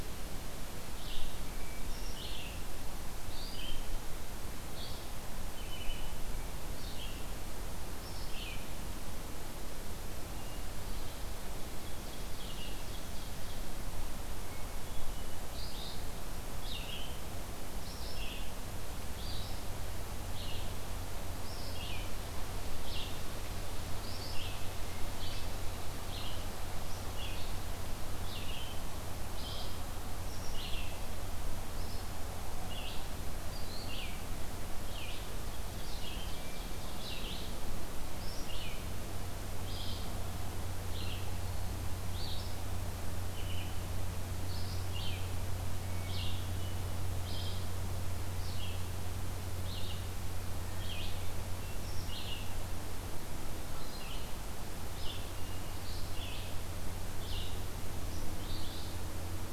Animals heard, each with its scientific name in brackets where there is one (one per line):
Ovenbird (Seiurus aurocapilla)
Hermit Thrush (Catharus guttatus)
Red-eyed Vireo (Vireo olivaceus)